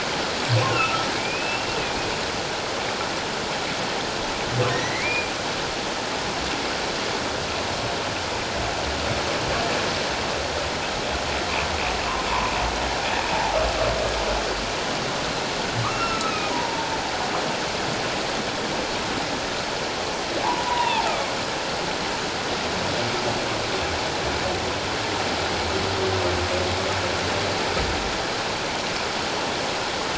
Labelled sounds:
0.7	2.1	humpback whale, 1.2 to 2.8 kHz
4.7	5.3	humpback whale, 1.8 to 2.5 kHz
15.9	16.9	humpback whale, 0.81 to 5.5 kHz
20.4	21.3	humpback whale, 0.78 to 3.8 kHz

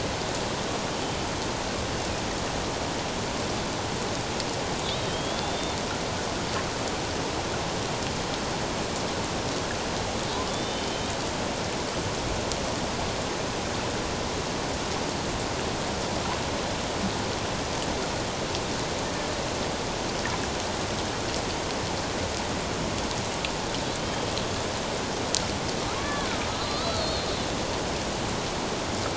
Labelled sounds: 4.8	5.8	killer whale, Bigg's (transient), 3.0 to 3.9 kHz
10.5	11.1	killer whale, Bigg's (transient), 3.0 to 3.7 kHz
24.0	24.3	killer whale, Bigg's (transient), 3.1 to 3.3 kHz
26.0	27.3	killer whale, Bigg's (transient), 1.0 to 4.8 kHz

